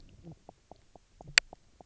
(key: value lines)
label: biophony, knock croak
recorder: SoundTrap 300